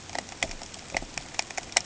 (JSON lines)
{"label": "ambient", "recorder": "HydroMoth"}